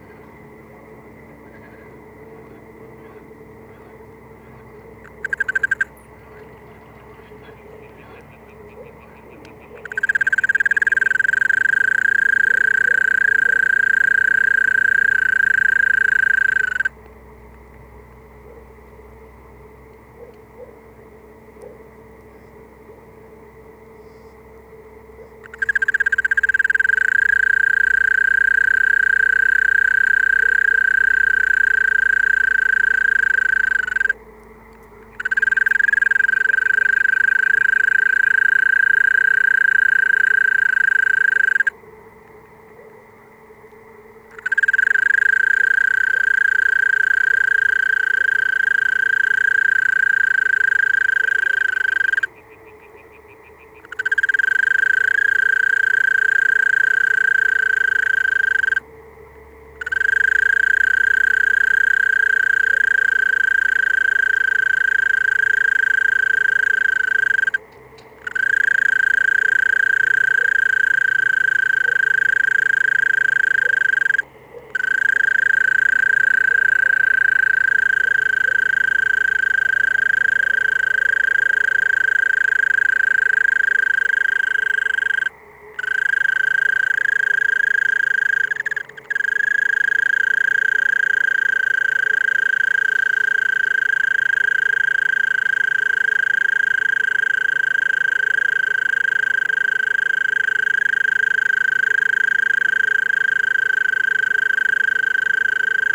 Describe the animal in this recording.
Gryllotalpa gryllotalpa, an orthopteran